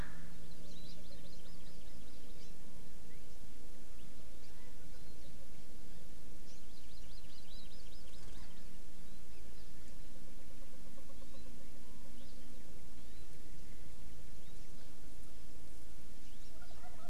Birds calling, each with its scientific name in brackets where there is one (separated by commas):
Hawaii Amakihi (Chlorodrepanis virens)